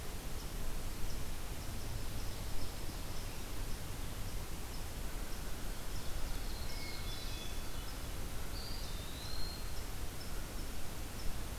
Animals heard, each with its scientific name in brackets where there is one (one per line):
Hermit Thrush (Catharus guttatus)
Black-throated Blue Warbler (Setophaga caerulescens)
Eastern Wood-Pewee (Contopus virens)